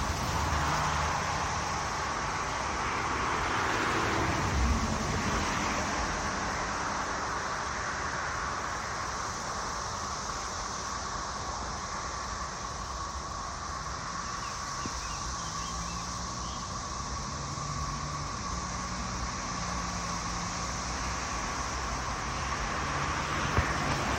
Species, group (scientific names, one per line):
Magicicada tredecim
Cicadidae